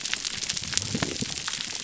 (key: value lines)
label: biophony
recorder: SoundTrap 300